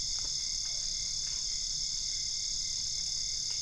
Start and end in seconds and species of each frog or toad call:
0.5	1.0	Physalaemus cuvieri
Brazil, ~1am

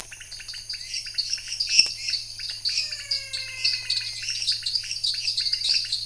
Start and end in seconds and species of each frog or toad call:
0.3	6.0	Dendropsophus nanus
0.3	6.0	Leptodactylus podicipinus
1.6	2.1	Dendropsophus minutus
2.7	4.3	Physalaemus albonotatus
Brazil, 9pm

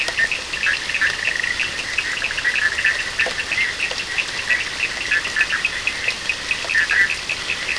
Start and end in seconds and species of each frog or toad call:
0.0	7.7	Boana bischoffi
0.2	7.7	Sphaenorhynchus surdus
Brazil, ~1am

